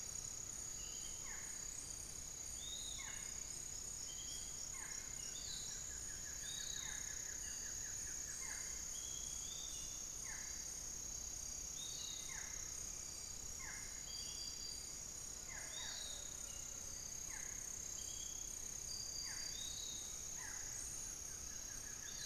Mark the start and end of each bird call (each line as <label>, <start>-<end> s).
Barred Forest-Falcon (Micrastur ruficollis), 0.0-22.3 s
Piratic Flycatcher (Legatus leucophaius), 0.0-22.3 s
Buff-throated Woodcreeper (Xiphorhynchus guttatus), 4.6-8.9 s
Buff-throated Woodcreeper (Xiphorhynchus guttatus), 20.6-22.3 s